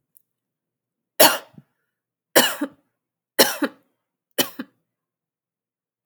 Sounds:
Cough